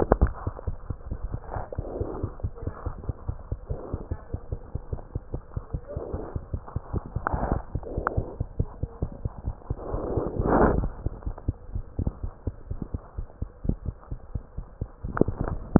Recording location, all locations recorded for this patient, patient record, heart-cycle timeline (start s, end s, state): mitral valve (MV)
aortic valve (AV)+pulmonary valve (PV)+tricuspid valve (TV)+mitral valve (MV)
#Age: Child
#Sex: Female
#Height: 83.0 cm
#Weight: 10.5 kg
#Pregnancy status: False
#Murmur: Absent
#Murmur locations: nan
#Most audible location: nan
#Systolic murmur timing: nan
#Systolic murmur shape: nan
#Systolic murmur grading: nan
#Systolic murmur pitch: nan
#Systolic murmur quality: nan
#Diastolic murmur timing: nan
#Diastolic murmur shape: nan
#Diastolic murmur grading: nan
#Diastolic murmur pitch: nan
#Diastolic murmur quality: nan
#Outcome: Normal
#Campaign: 2015 screening campaign
0.00	2.43	unannotated
2.43	2.50	S2
2.50	2.66	diastole
2.66	2.74	S1
2.74	2.84	systole
2.84	2.94	S2
2.94	3.07	diastole
3.07	3.15	S1
3.15	3.27	systole
3.27	3.35	S2
3.35	3.50	diastole
3.50	3.56	S1
3.56	3.69	systole
3.69	3.75	S2
3.75	3.92	diastole
3.92	4.02	S1
4.02	4.10	systole
4.10	4.20	S2
4.20	4.32	diastole
4.32	4.37	S1
4.37	4.50	systole
4.50	4.60	S2
4.60	4.74	diastole
4.74	4.82	S1
4.82	4.90	systole
4.90	4.96	S2
4.96	5.15	diastole
5.15	5.21	S1
5.21	5.33	systole
5.33	5.40	S2
5.40	5.54	diastole
5.54	5.62	S1
5.62	5.72	systole
5.72	5.81	S2
5.81	5.95	diastole
5.95	6.00	S1
6.00	6.12	systole
6.12	6.17	S2
6.17	6.34	diastole
6.34	6.38	S1
6.38	6.52	systole
6.52	6.58	S2
6.58	6.74	diastole
6.74	6.84	S1
6.84	6.92	systole
6.92	7.02	S2
7.02	7.14	diastole
7.14	15.79	unannotated